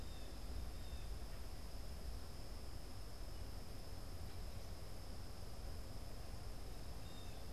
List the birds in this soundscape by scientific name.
Cyanocitta cristata